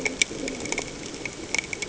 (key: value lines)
label: anthrophony, boat engine
recorder: HydroMoth